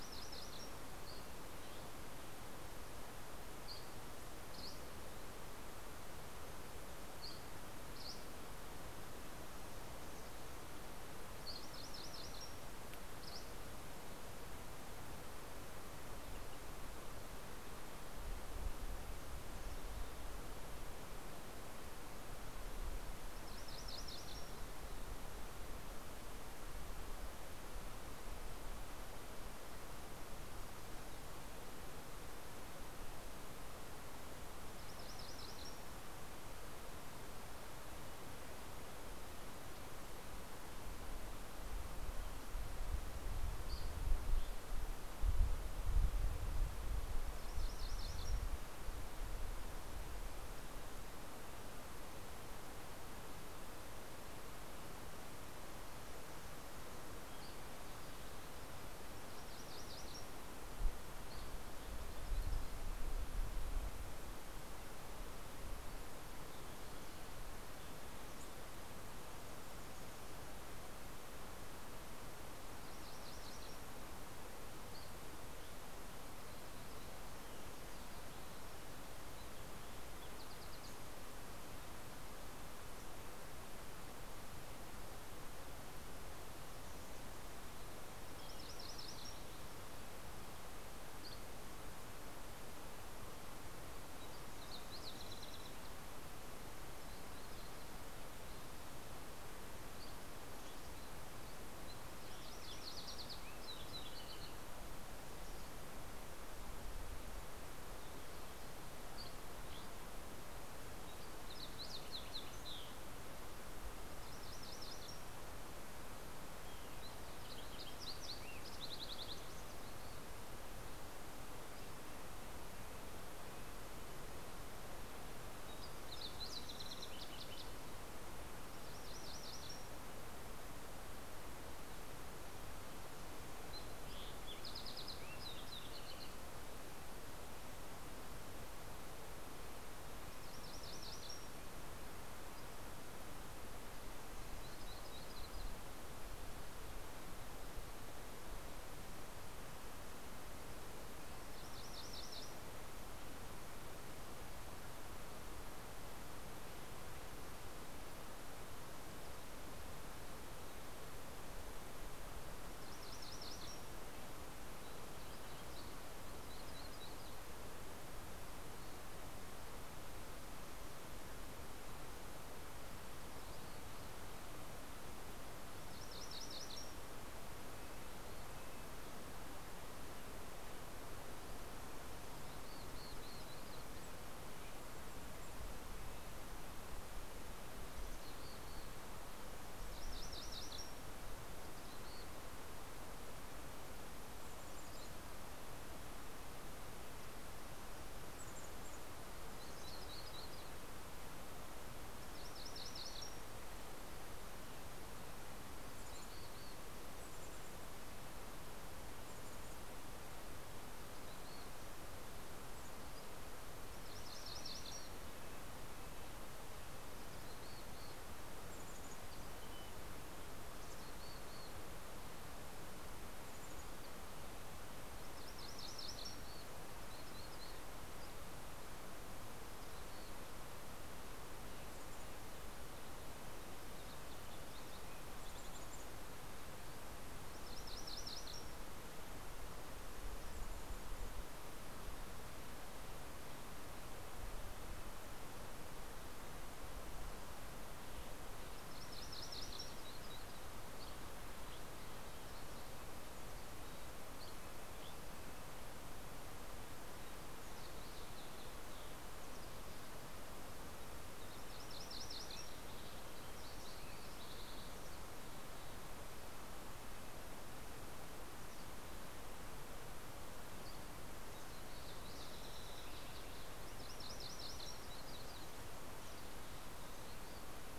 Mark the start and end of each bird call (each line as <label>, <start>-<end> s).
MacGillivray's Warbler (Geothlypis tolmiei), 0.0-1.4 s
Dusky Flycatcher (Empidonax oberholseri), 1.1-5.6 s
Dusky Flycatcher (Empidonax oberholseri), 6.6-8.5 s
MacGillivray's Warbler (Geothlypis tolmiei), 11.2-12.5 s
Dusky Flycatcher (Empidonax oberholseri), 12.7-14.1 s
MacGillivray's Warbler (Geothlypis tolmiei), 22.9-24.8 s
MacGillivray's Warbler (Geothlypis tolmiei), 34.1-37.0 s
Dusky Flycatcher (Empidonax oberholseri), 43.1-44.7 s
MacGillivray's Warbler (Geothlypis tolmiei), 46.7-48.9 s
Dusky Flycatcher (Empidonax oberholseri), 56.5-58.4 s
MacGillivray's Warbler (Geothlypis tolmiei), 59.0-61.2 s
MacGillivray's Warbler (Geothlypis tolmiei), 72.5-74.1 s
Dusky Flycatcher (Empidonax oberholseri), 74.4-75.9 s
Lazuli Bunting (Passerina amoena), 78.8-82.3 s
MacGillivray's Warbler (Geothlypis tolmiei), 88.4-89.7 s
Dusky Flycatcher (Empidonax oberholseri), 90.9-91.8 s
Fox Sparrow (Passerella iliaca), 93.7-96.3 s
Dusky Flycatcher (Empidonax oberholseri), 99.3-102.0 s
MacGillivray's Warbler (Geothlypis tolmiei), 101.9-103.3 s
Fox Sparrow (Passerella iliaca), 102.6-105.5 s
Dusky Flycatcher (Empidonax oberholseri), 108.2-110.0 s
Fox Sparrow (Passerella iliaca), 110.6-113.5 s
MacGillivray's Warbler (Geothlypis tolmiei), 113.9-115.2 s
Fox Sparrow (Passerella iliaca), 116.4-120.6 s
Red-breasted Nuthatch (Sitta canadensis), 121.2-124.3 s
Fox Sparrow (Passerella iliaca), 124.9-127.9 s
MacGillivray's Warbler (Geothlypis tolmiei), 128.3-130.2 s
Fox Sparrow (Passerella iliaca), 133.2-136.7 s
MacGillivray's Warbler (Geothlypis tolmiei), 140.1-141.7 s
Yellow-rumped Warbler (Setophaga coronata), 144.4-146.1 s
MacGillivray's Warbler (Geothlypis tolmiei), 150.9-153.2 s
MacGillivray's Warbler (Geothlypis tolmiei), 162.5-164.4 s
Yellow-rumped Warbler (Setophaga coronata), 166.2-167.8 s
MacGillivray's Warbler (Geothlypis tolmiei), 175.2-177.3 s
Red-breasted Nuthatch (Sitta canadensis), 177.0-180.3 s
Mountain Chickadee (Poecile gambeli), 182.1-184.3 s
Red-breasted Nuthatch (Sitta canadensis), 182.5-187.8 s
Mountain Chickadee (Poecile gambeli), 187.6-189.1 s
MacGillivray's Warbler (Geothlypis tolmiei), 189.4-191.2 s
Mountain Chickadee (Poecile gambeli), 191.4-192.2 s
Mountain Chickadee (Poecile gambeli), 193.9-195.6 s
Mountain Chickadee (Poecile gambeli), 197.1-199.4 s
Yellow-rumped Warbler (Setophaga coronata), 198.9-201.0 s
MacGillivray's Warbler (Geothlypis tolmiei), 202.2-203.3 s
Mountain Chickadee (Poecile gambeli), 205.0-211.7 s
Red-breasted Nuthatch (Sitta canadensis), 213.5-219.6 s
MacGillivray's Warbler (Geothlypis tolmiei), 213.7-215.5 s
Mountain Chickadee (Poecile gambeli), 217.2-222.2 s
Mountain Chickadee (Poecile gambeli), 223.2-224.7 s
MacGillivray's Warbler (Geothlypis tolmiei), 225.0-226.5 s
Mountain Chickadee (Poecile gambeli), 226.7-228.4 s
Mountain Chickadee (Poecile gambeli), 229.4-230.6 s
Mountain Chickadee (Poecile gambeli), 231.5-236.2 s
MacGillivray's Warbler (Geothlypis tolmiei), 237.3-239.1 s
Mountain Chickadee (Poecile gambeli), 240.1-241.6 s
MacGillivray's Warbler (Geothlypis tolmiei), 248.4-250.1 s
Dusky Flycatcher (Empidonax oberholseri), 250.8-255.3 s
MacGillivray's Warbler (Geothlypis tolmiei), 261.3-262.8 s
Fox Sparrow (Passerella iliaca), 262.6-264.9 s
Mountain Chickadee (Poecile gambeli), 264.7-266.1 s
Mountain Chickadee (Poecile gambeli), 268.2-269.5 s
MacGillivray's Warbler (Geothlypis tolmiei), 273.6-275.1 s